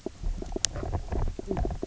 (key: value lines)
label: biophony, knock croak
recorder: SoundTrap 300